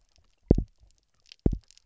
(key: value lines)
label: biophony, double pulse
recorder: SoundTrap 300